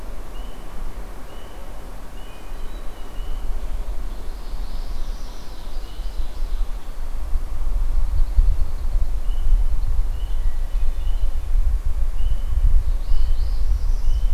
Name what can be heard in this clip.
Hermit Thrush, Northern Parula, Ovenbird, Red-winged Blackbird